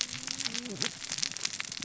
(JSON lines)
{"label": "biophony, cascading saw", "recorder": "SoundTrap 600 or HydroMoth"}